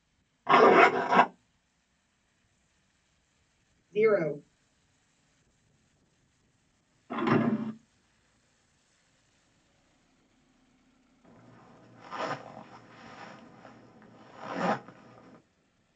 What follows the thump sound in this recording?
zipper